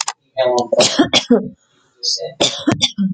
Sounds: Cough